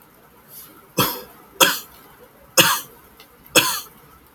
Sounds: Cough